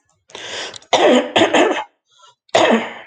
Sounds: Cough